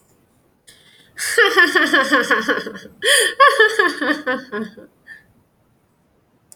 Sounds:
Laughter